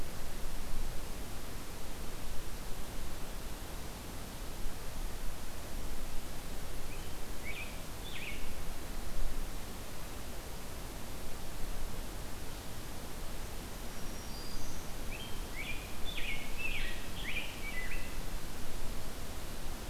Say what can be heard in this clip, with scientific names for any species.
Pheucticus ludovicianus, Setophaga virens